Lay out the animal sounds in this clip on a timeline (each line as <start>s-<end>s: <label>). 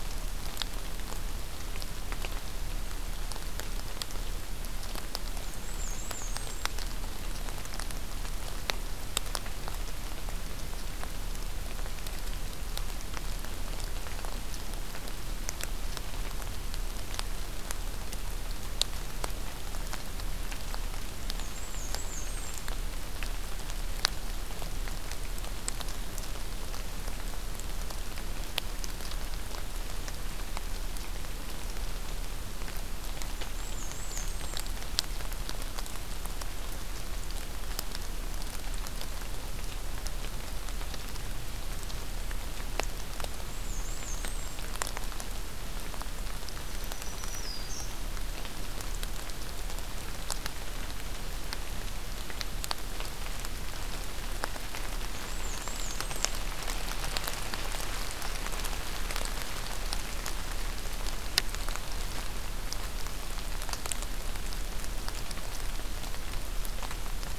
5.4s-6.7s: Black-and-white Warbler (Mniotilta varia)
21.1s-22.7s: Black-and-white Warbler (Mniotilta varia)
33.3s-34.7s: Black-and-white Warbler (Mniotilta varia)
43.3s-44.7s: Black-and-white Warbler (Mniotilta varia)
46.5s-48.0s: Black-throated Green Warbler (Setophaga virens)
54.9s-56.4s: Black-and-white Warbler (Mniotilta varia)